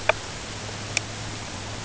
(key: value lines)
label: ambient
recorder: HydroMoth